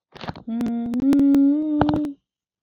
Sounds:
Sigh